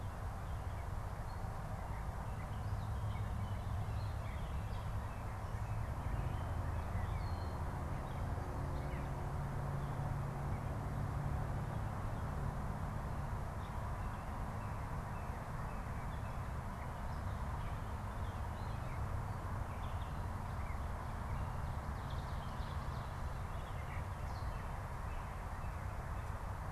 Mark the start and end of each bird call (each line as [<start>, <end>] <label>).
[0.31, 9.21] Gray Catbird (Dumetella carolinensis)
[4.01, 6.61] Northern Cardinal (Cardinalis cardinalis)
[13.81, 16.31] Northern Cardinal (Cardinalis cardinalis)
[16.81, 20.31] Gray Catbird (Dumetella carolinensis)
[21.61, 23.21] Ovenbird (Seiurus aurocapilla)
[23.21, 25.01] Gray Catbird (Dumetella carolinensis)